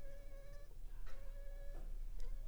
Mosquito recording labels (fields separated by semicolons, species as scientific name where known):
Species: Anopheles funestus s.l.; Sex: female; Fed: unfed; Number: one; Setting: cup